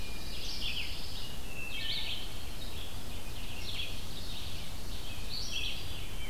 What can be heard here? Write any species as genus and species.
Setophaga pinus, Vireo olivaceus, Hylocichla mustelina